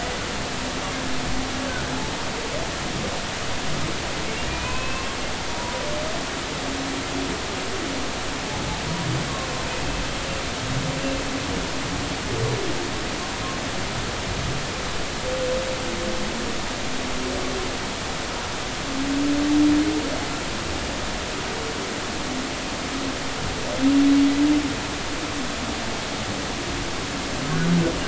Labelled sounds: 4.5	5.1	humpback whale, 0.96 to 2.7 kHz

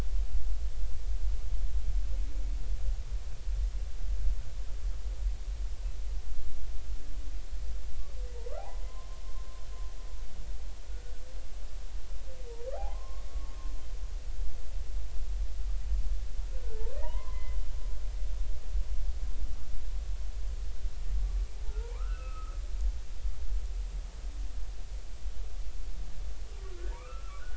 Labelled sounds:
8.3	9.2	humpback whale, 0.80 to 1.4 kHz
12.7	13.3	humpback whale, 0.80 to 1.2 kHz
16.6	17.6	humpback whale, 0.86 to 2.1 kHz
21.9	22.5	humpback whale, 0.83 to 2.8 kHz
26.6	27.5	humpback whale, 0.86 to 1.8 kHz

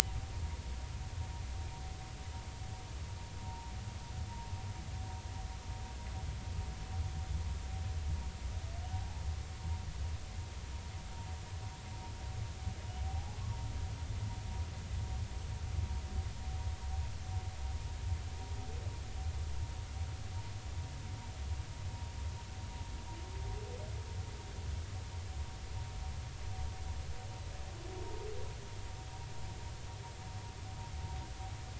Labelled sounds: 3.4	3.7	vessel noise, 0.83 to 0.99 kHz
8.9	9.2	humpback whale, 0.80 to 0.90 kHz
13.0	13.4	humpback whale, 0.80 to 0.90 kHz

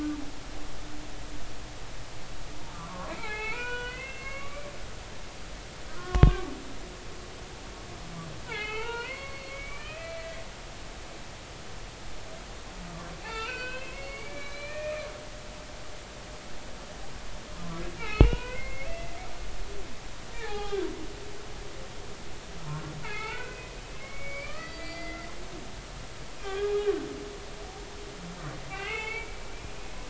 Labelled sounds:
2.7	4.7	humpback whale, 0.80 to 3.6 kHz
5.9	6.5	humpback whale, 1.0 to 1.5 kHz
8.5	10.4	humpback whale, 0.80 to 4.5 kHz
13.2	15.1	humpback whale, 0.80 to 4.7 kHz
18.0	19.2	humpback whale, 0.90 to 3.1 kHz
20.3	20.9	humpback whale, 0.80 to 3.4 kHz
23.0	23.7	humpback whale, 1.2 to 4.5 kHz
24.0	25.3	humpback whale, 1.1 to 4.8 kHz
26.4	26.9	humpback whale, 1.1 to 2.5 kHz
28.7	29.4	humpback whale, 0.80 to 3.1 kHz

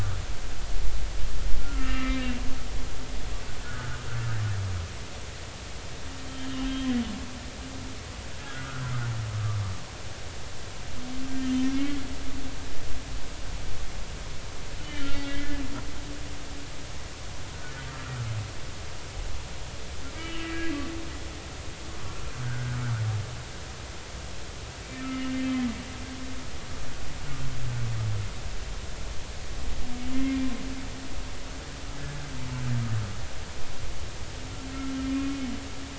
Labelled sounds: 1.6	2.3	humpback whale, 1.2 to 2.4 kHz
3.6	4.0	humpback whale, 1.3 to 1.6 kHz
6.2	6.9	humpback whale, 3.0 to 3.3 kHz
8.4	8.8	humpback whale, 1.2 to 1.5 kHz
11.4	11.9	humpback whale, 2.1 to 3.2 kHz
14.8	15.6	humpback whale, 1.6 to 3.7 kHz
20.1	20.5	humpback whale, 1.2 to 3.0 kHz
22.4	22.8	humpback whale, 1.4 to 1.7 kHz
24.8	25.5	humpback whale, 1.8 to 3.0 kHz
30.1	30.4	humpback whale, 2.0 to 2.2 kHz

